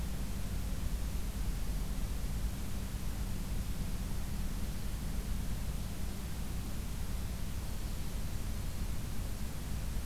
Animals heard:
forest ambience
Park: Acadia National Park